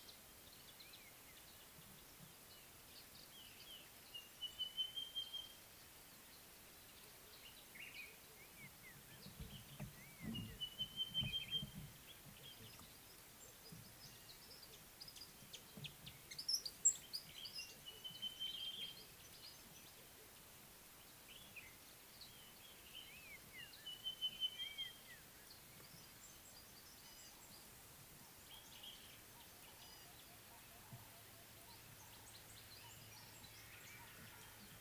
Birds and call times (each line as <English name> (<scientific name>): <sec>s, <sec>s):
Sulphur-breasted Bushshrike (Telophorus sulfureopectus): 5.2s, 18.2s